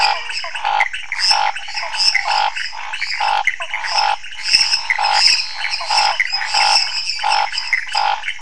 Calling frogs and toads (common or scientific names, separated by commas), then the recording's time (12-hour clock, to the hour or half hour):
menwig frog, lesser tree frog, pointedbelly frog, Pithecopus azureus, Scinax fuscovarius, Cuyaba dwarf frog, Elachistocleis matogrosso
10pm